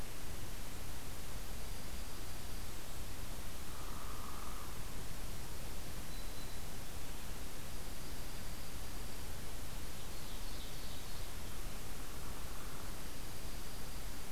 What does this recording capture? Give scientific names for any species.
Junco hyemalis, Colaptes auratus, Setophaga virens, Seiurus aurocapilla